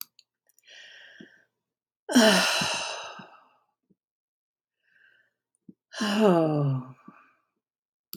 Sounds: Sigh